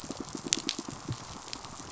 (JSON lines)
{"label": "biophony, pulse", "recorder": "SoundTrap 500"}